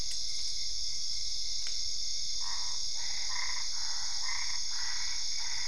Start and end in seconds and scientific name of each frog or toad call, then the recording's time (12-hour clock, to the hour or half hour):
2.2	5.6	Boana albopunctata
11:30pm